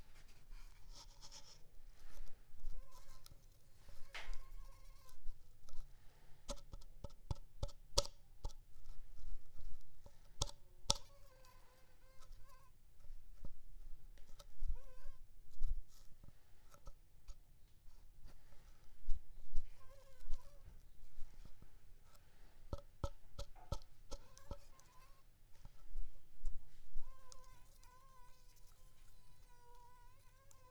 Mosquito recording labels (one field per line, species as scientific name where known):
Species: Anopheles squamosus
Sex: female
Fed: unfed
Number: one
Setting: cup